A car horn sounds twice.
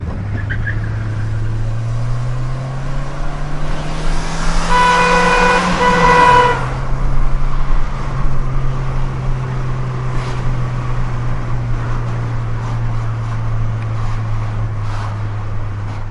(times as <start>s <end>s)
4.6s 6.9s